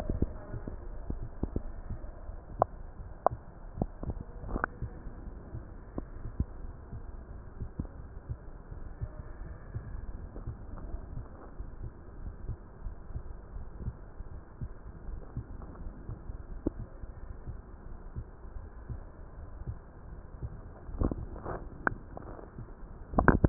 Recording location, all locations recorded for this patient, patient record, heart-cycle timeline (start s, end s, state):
pulmonary valve (PV)
aortic valve (AV)+pulmonary valve (PV)+tricuspid valve (TV)
#Age: nan
#Sex: Female
#Height: nan
#Weight: nan
#Pregnancy status: True
#Murmur: Absent
#Murmur locations: nan
#Most audible location: nan
#Systolic murmur timing: nan
#Systolic murmur shape: nan
#Systolic murmur grading: nan
#Systolic murmur pitch: nan
#Systolic murmur quality: nan
#Diastolic murmur timing: nan
#Diastolic murmur shape: nan
#Diastolic murmur grading: nan
#Diastolic murmur pitch: nan
#Diastolic murmur quality: nan
#Outcome: Normal
#Campaign: 2015 screening campaign
0.00	7.22	unannotated
7.22	7.60	diastole
7.60	7.70	S1
7.70	7.78	systole
7.78	7.88	S2
7.88	8.28	diastole
8.28	8.38	S1
8.38	8.44	systole
8.44	8.52	S2
8.52	8.98	diastole
8.98	9.12	S1
9.12	9.18	systole
9.18	9.30	S2
9.30	9.72	diastole
9.72	9.84	S1
9.84	9.88	systole
9.88	10.00	S2
10.00	10.36	diastole
10.36	10.44	S1
10.44	10.47	systole
10.47	10.56	S2
10.56	10.90	diastole
10.90	11.02	S1
11.02	11.12	systole
11.12	11.26	S2
11.26	11.60	diastole
11.60	11.72	S1
11.72	11.80	systole
11.80	11.90	S2
11.90	12.24	diastole
12.24	12.36	S1
12.36	12.44	systole
12.44	12.56	S2
12.56	12.88	diastole
12.88	13.00	S1
13.00	13.10	systole
13.10	13.22	S2
13.22	13.54	diastole
13.54	13.68	S1
13.68	13.82	systole
13.82	13.96	S2
13.96	14.42	diastole
14.42	14.52	S1
14.52	14.60	systole
14.60	14.72	S2
14.72	15.08	diastole
15.08	15.22	S1
15.22	15.34	systole
15.34	15.44	S2
15.44	15.82	diastole
15.82	15.94	S1
15.94	16.06	systole
16.06	16.16	S2
16.16	16.52	diastole
16.52	16.62	S1
16.62	16.74	systole
16.74	16.86	S2
16.86	17.24	diastole
17.24	17.36	S1
17.36	17.46	systole
17.46	17.60	S2
17.60	18.04	diastole
18.04	18.13	S1
18.13	18.18	systole
18.18	18.28	S2
18.28	18.66	diastole
18.66	18.78	S1
18.78	18.88	systole
18.88	19.00	S2
19.00	19.42	diastole
19.42	19.54	S1
19.54	19.62	systole
19.62	19.76	S2
19.76	20.18	diastole
20.18	20.30	S1
20.30	20.40	systole
20.40	20.52	S2
20.52	20.76	diastole
20.76	23.49	unannotated